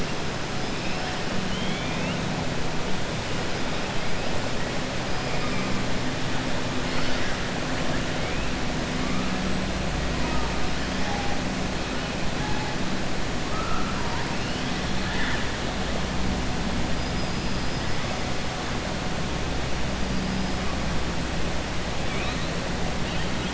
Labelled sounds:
1.4	2.2	killer whale, 2.1 to 3.7 kHz
15.0	15.5	killer whale, 0.96 to 3.8 kHz

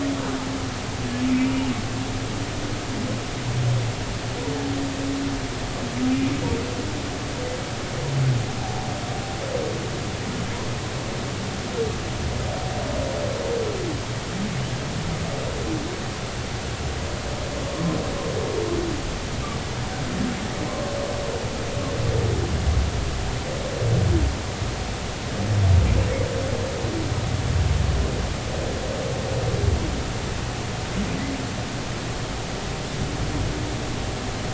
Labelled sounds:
20.7	21.0	humpback whale, 0.99 to 1.2 kHz

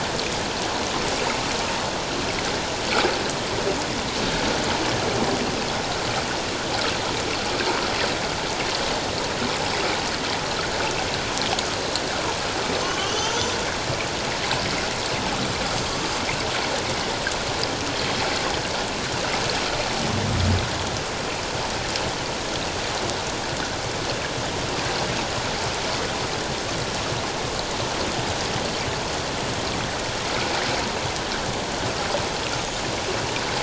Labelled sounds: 12.8	13.6	killer whale, northern resident, 0.97 to 6.2 kHz

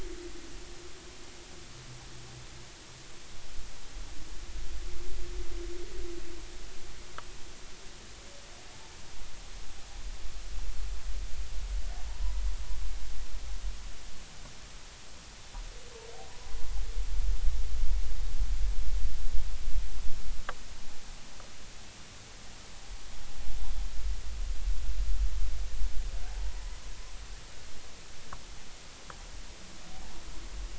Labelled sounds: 12.1	12.4	humpback whale, 0.83 to 1.1 kHz

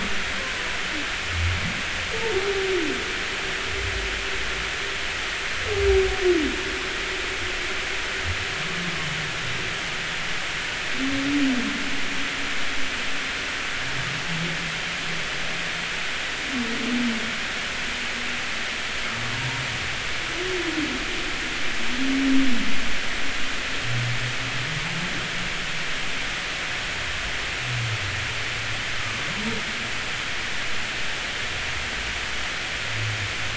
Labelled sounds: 0.4	0.6	humpback whale, 0.96 to 1.1 kHz

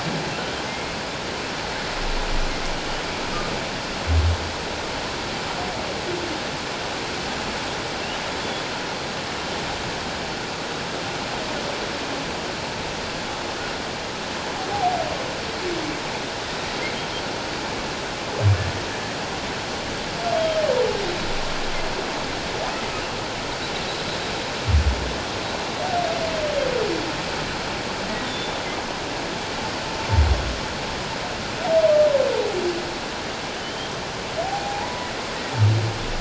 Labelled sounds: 0.7	0.9	humpback whale, 2.0 to 2.2 kHz
14.7	15.0	humpback whale, 0.78 to 0.88 kHz
28.2	28.6	humpback whale, 3.4 to 3.7 kHz
33.6	33.9	humpback whale, 2.9 to 3.3 kHz
34.4	35.1	humpback whale, 0.78 to 1.0 kHz

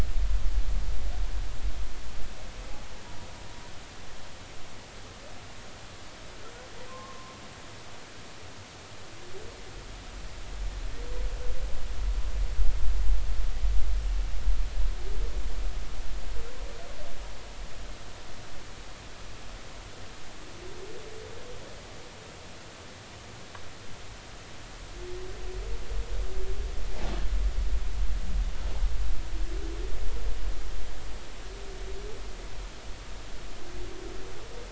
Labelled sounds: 6.9	7.3	humpback whale, 0.99 to 1.1 kHz

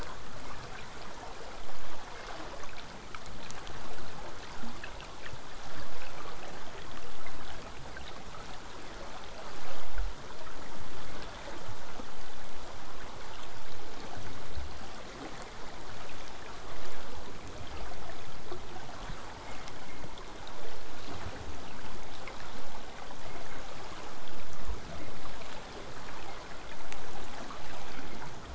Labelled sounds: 23.6	28.5	vessel noise, 0 to 8.0 kHz

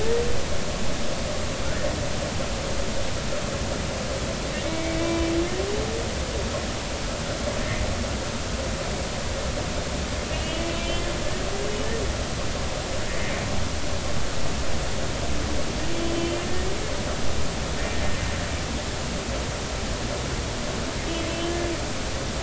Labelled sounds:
4.6	5.3	humpback whale, 0.96 to 2.4 kHz
10.3	11.0	humpback whale, 2.5 to 3.0 kHz
16.1	16.4	humpback whale, 3.0 to 3.2 kHz
21.3	21.6	humpback whale, 3.0 to 3.1 kHz

